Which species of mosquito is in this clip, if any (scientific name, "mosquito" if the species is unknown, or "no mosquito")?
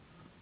Anopheles gambiae s.s.